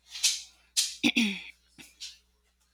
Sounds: Throat clearing